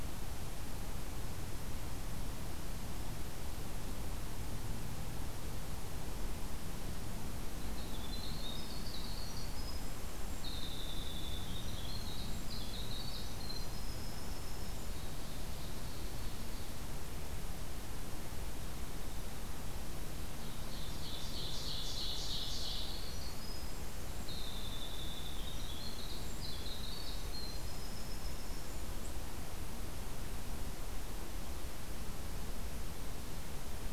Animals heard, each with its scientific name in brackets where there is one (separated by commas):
Winter Wren (Troglodytes hiemalis), Ovenbird (Seiurus aurocapilla)